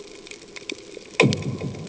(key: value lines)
label: anthrophony, bomb
recorder: HydroMoth